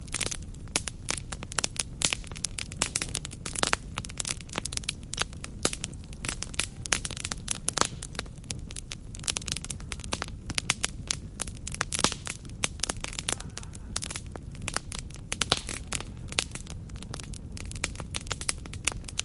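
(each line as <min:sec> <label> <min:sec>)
0:00.0 Wooden branches crackle consistently in a campfire outdoors. 0:19.2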